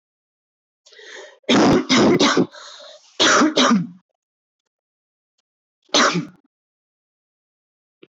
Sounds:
Cough